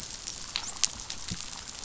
{"label": "biophony, dolphin", "recorder": "SoundTrap 500"}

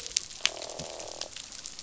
{"label": "biophony, croak", "recorder": "SoundTrap 500"}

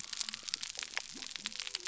{"label": "biophony", "recorder": "SoundTrap 300"}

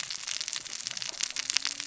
{"label": "biophony, cascading saw", "recorder": "SoundTrap 600 or HydroMoth"}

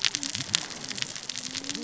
{"label": "biophony, cascading saw", "recorder": "SoundTrap 600 or HydroMoth"}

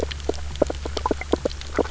{"label": "biophony, grazing", "recorder": "SoundTrap 300"}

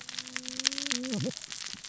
{"label": "biophony, cascading saw", "recorder": "SoundTrap 600 or HydroMoth"}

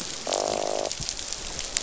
{"label": "biophony, croak", "recorder": "SoundTrap 500"}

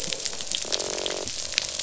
{"label": "biophony, croak", "recorder": "SoundTrap 500"}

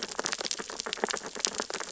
{"label": "biophony, sea urchins (Echinidae)", "recorder": "SoundTrap 600 or HydroMoth"}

